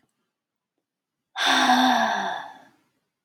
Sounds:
Sigh